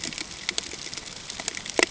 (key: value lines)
label: ambient
recorder: HydroMoth